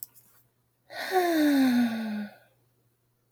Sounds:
Sigh